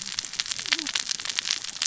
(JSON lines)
{"label": "biophony, cascading saw", "recorder": "SoundTrap 600 or HydroMoth"}